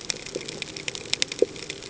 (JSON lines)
{"label": "ambient", "recorder": "HydroMoth"}